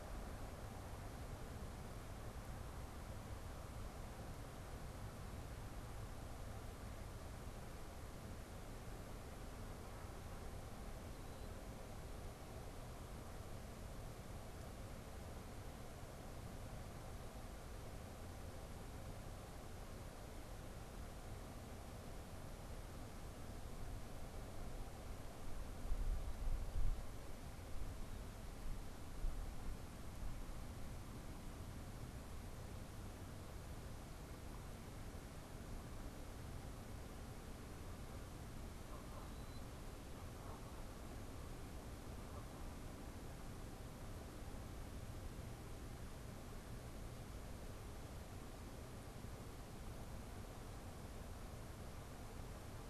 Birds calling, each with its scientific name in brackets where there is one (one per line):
Killdeer (Charadrius vociferus)
Canada Goose (Branta canadensis)